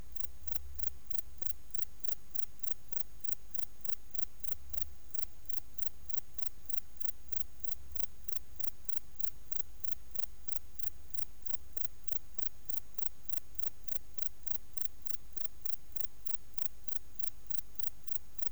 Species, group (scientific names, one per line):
Metrioptera brachyptera
Orthoptera